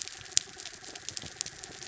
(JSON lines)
{"label": "anthrophony, mechanical", "recorder": "SoundTrap 300"}